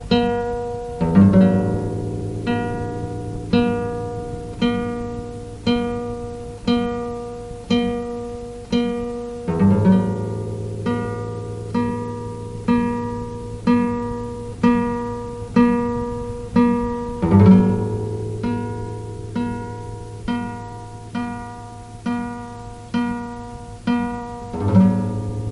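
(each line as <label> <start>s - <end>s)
A close-up guitar sound is heard. 0.0s - 2.4s
A guitar string is plucked repeatedly in the same rhythm. 2.4s - 9.3s
A close-up guitar sound is heard. 9.4s - 10.6s
A guitar string is plucked repeatedly in the same rhythm. 10.8s - 17.2s
A close-up guitar sound is heard. 17.2s - 18.1s
A guitar string is plucked repeatedly in the same rhythm. 18.3s - 24.5s
A close-up guitar sound is heard. 24.6s - 25.3s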